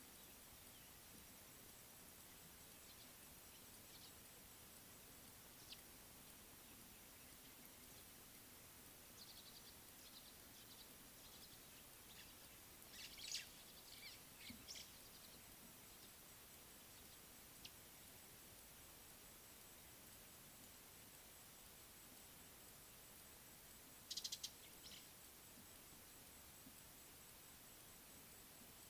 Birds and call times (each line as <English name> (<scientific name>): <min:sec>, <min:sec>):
White-browed Sparrow-Weaver (Plocepasser mahali): 0:13.1
Beautiful Sunbird (Cinnyris pulchellus): 0:24.3